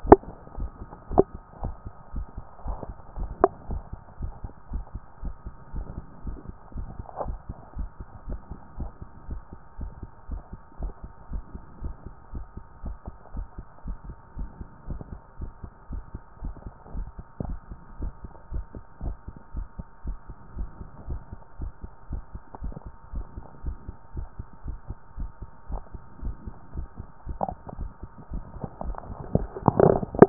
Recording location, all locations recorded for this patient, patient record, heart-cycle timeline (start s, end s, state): tricuspid valve (TV)
pulmonary valve (PV)+tricuspid valve (TV)+mitral valve (MV)
#Age: nan
#Sex: Female
#Height: nan
#Weight: nan
#Pregnancy status: True
#Murmur: Absent
#Murmur locations: nan
#Most audible location: nan
#Systolic murmur timing: nan
#Systolic murmur shape: nan
#Systolic murmur grading: nan
#Systolic murmur pitch: nan
#Systolic murmur quality: nan
#Diastolic murmur timing: nan
#Diastolic murmur shape: nan
#Diastolic murmur grading: nan
#Diastolic murmur pitch: nan
#Diastolic murmur quality: nan
#Outcome: Normal
#Campaign: 2014 screening campaign
0.00	3.55	unannotated
3.55	3.70	diastole
3.70	3.82	S1
3.82	3.92	systole
3.92	4.00	S2
4.00	4.20	diastole
4.20	4.32	S1
4.32	4.42	systole
4.42	4.52	S2
4.52	4.72	diastole
4.72	4.84	S1
4.84	4.94	systole
4.94	5.02	S2
5.02	5.22	diastole
5.22	5.34	S1
5.34	5.44	systole
5.44	5.54	S2
5.54	5.74	diastole
5.74	5.86	S1
5.86	5.96	systole
5.96	6.04	S2
6.04	6.26	diastole
6.26	6.38	S1
6.38	6.48	systole
6.48	6.56	S2
6.56	6.76	diastole
6.76	6.88	S1
6.88	6.98	systole
6.98	7.06	S2
7.06	7.26	diastole
7.26	7.38	S1
7.38	7.48	systole
7.48	7.56	S2
7.56	7.76	diastole
7.76	7.90	S1
7.90	8.00	systole
8.00	8.08	S2
8.08	8.28	diastole
8.28	8.40	S1
8.40	8.50	systole
8.50	8.58	S2
8.58	8.78	diastole
8.78	8.90	S1
8.90	9.00	systole
9.00	9.10	S2
9.10	9.30	diastole
9.30	9.40	S1
9.40	9.52	systole
9.52	9.60	S2
9.60	9.80	diastole
9.80	9.92	S1
9.92	10.02	systole
10.02	10.10	S2
10.10	10.30	diastole
10.30	10.42	S1
10.42	10.52	systole
10.52	10.60	S2
10.60	10.80	diastole
10.80	10.92	S1
10.92	11.02	systole
11.02	11.10	S2
11.10	11.32	diastole
11.32	11.42	S1
11.42	11.54	systole
11.54	11.62	S2
11.62	11.82	diastole
11.82	11.94	S1
11.94	12.06	systole
12.06	12.14	S2
12.14	12.34	diastole
12.34	12.44	S1
12.44	12.56	systole
12.56	12.64	S2
12.64	12.84	diastole
12.84	12.96	S1
12.96	13.06	systole
13.06	13.14	S2
13.14	13.34	diastole
13.34	13.46	S1
13.46	13.58	systole
13.58	13.66	S2
13.66	13.86	diastole
13.86	13.98	S1
13.98	14.06	systole
14.06	14.16	S2
14.16	14.38	diastole
14.38	14.50	S1
14.50	14.60	systole
14.60	14.68	S2
14.68	14.88	diastole
14.88	15.00	S1
15.00	15.12	systole
15.12	15.20	S2
15.20	15.40	diastole
15.40	15.52	S1
15.52	15.62	systole
15.62	15.70	S2
15.70	15.90	diastole
15.90	16.04	S1
16.04	16.14	systole
16.14	16.22	S2
16.22	16.42	diastole
16.42	16.54	S1
16.54	16.64	systole
16.64	16.74	S2
16.74	16.94	diastole
16.94	17.08	S1
17.08	17.18	systole
17.18	17.24	S2
17.24	17.46	diastole
17.46	17.58	S1
17.58	17.70	systole
17.70	17.78	S2
17.78	18.00	diastole
18.00	18.12	S1
18.12	18.22	systole
18.22	18.32	S2
18.32	18.52	diastole
18.52	18.64	S1
18.64	18.74	systole
18.74	18.84	S2
18.84	19.02	diastole
19.02	19.16	S1
19.16	19.26	systole
19.26	19.34	S2
19.34	19.54	diastole
19.54	19.68	S1
19.68	19.78	systole
19.78	19.86	S2
19.86	20.06	diastole
20.06	20.18	S1
20.18	20.28	systole
20.28	20.36	S2
20.36	20.56	diastole
20.56	20.68	S1
20.68	20.80	systole
20.80	20.88	S2
20.88	21.08	diastole
21.08	21.20	S1
21.20	21.32	systole
21.32	21.40	S2
21.40	21.60	diastole
21.60	21.72	S1
21.72	21.82	systole
21.82	21.90	S2
21.90	22.10	diastole
22.10	22.22	S1
22.22	22.34	systole
22.34	22.42	S2
22.42	22.62	diastole
22.62	22.74	S1
22.74	22.86	systole
22.86	22.94	S2
22.94	23.14	diastole
23.14	23.26	S1
23.26	23.36	systole
23.36	23.44	S2
23.44	23.64	diastole
23.64	23.76	S1
23.76	23.88	systole
23.88	23.96	S2
23.96	24.16	diastole
24.16	24.28	S1
24.28	24.38	systole
24.38	24.46	S2
24.46	24.66	diastole
24.66	24.78	S1
24.78	24.88	systole
24.88	24.96	S2
24.96	25.18	diastole
25.18	25.30	S1
25.30	25.40	systole
25.40	25.50	S2
25.50	25.70	diastole
25.70	25.82	S1
25.82	25.92	systole
25.92	26.02	S2
26.02	26.22	diastole
26.22	26.36	S1
26.36	26.46	systole
26.46	26.54	S2
26.54	26.76	diastole
26.76	26.88	S1
26.88	26.98	systole
26.98	27.08	S2
27.08	27.26	diastole
27.26	30.29	unannotated